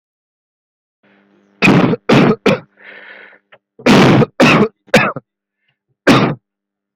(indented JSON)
{
  "expert_labels": [
    {
      "quality": "ok",
      "cough_type": "unknown",
      "dyspnea": false,
      "wheezing": false,
      "stridor": false,
      "choking": false,
      "congestion": false,
      "nothing": true,
      "diagnosis": "upper respiratory tract infection",
      "severity": "unknown"
    }
  ],
  "age": 30,
  "gender": "male",
  "respiratory_condition": false,
  "fever_muscle_pain": false,
  "status": "symptomatic"
}